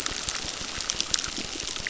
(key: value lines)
label: biophony, crackle
recorder: SoundTrap 600